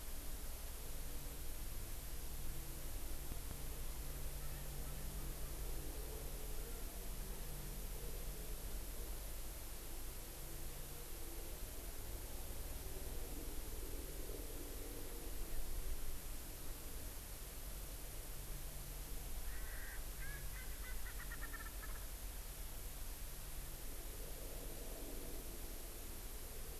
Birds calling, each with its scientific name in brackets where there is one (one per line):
Erckel's Francolin (Pternistis erckelii)